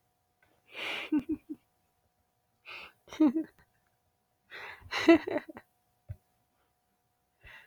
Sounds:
Laughter